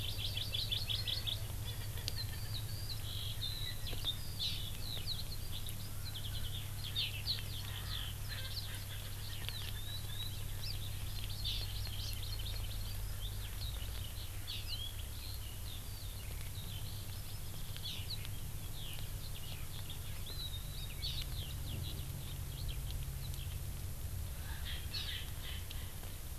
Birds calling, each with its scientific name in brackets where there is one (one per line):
Hawaii Amakihi (Chlorodrepanis virens)
Eurasian Skylark (Alauda arvensis)
Erckel's Francolin (Pternistis erckelii)